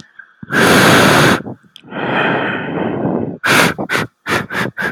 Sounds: Sniff